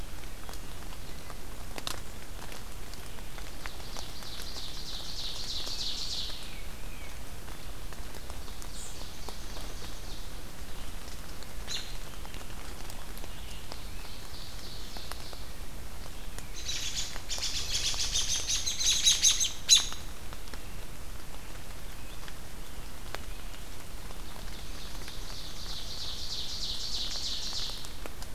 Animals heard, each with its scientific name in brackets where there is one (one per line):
American Robin (Turdus migratorius)
Tufted Titmouse (Baeolophus bicolor)
Wood Thrush (Hylocichla mustelina)
Ovenbird (Seiurus aurocapilla)